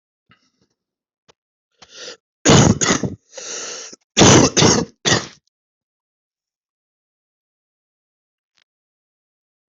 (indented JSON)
{
  "expert_labels": [
    {
      "quality": "good",
      "cough_type": "wet",
      "dyspnea": false,
      "wheezing": false,
      "stridor": false,
      "choking": false,
      "congestion": false,
      "nothing": true,
      "diagnosis": "upper respiratory tract infection",
      "severity": "mild"
    }
  ],
  "age": 41,
  "gender": "male",
  "respiratory_condition": false,
  "fever_muscle_pain": false,
  "status": "symptomatic"
}